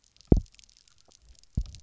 {"label": "biophony, double pulse", "recorder": "SoundTrap 300"}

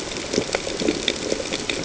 {"label": "ambient", "recorder": "HydroMoth"}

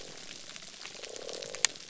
{"label": "biophony", "recorder": "SoundTrap 300"}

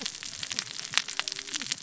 {"label": "biophony, cascading saw", "recorder": "SoundTrap 600 or HydroMoth"}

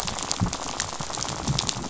{"label": "biophony, rattle", "recorder": "SoundTrap 500"}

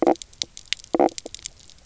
{"label": "biophony, knock croak", "recorder": "SoundTrap 300"}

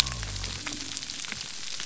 {"label": "biophony", "recorder": "SoundTrap 300"}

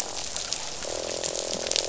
{"label": "biophony, croak", "recorder": "SoundTrap 500"}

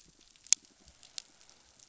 {"label": "biophony", "recorder": "SoundTrap 500"}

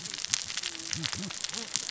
{"label": "biophony, cascading saw", "recorder": "SoundTrap 600 or HydroMoth"}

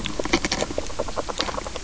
{"label": "biophony, grazing", "recorder": "SoundTrap 300"}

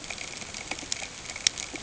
{"label": "ambient", "recorder": "HydroMoth"}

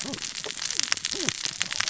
{"label": "biophony, cascading saw", "recorder": "SoundTrap 600 or HydroMoth"}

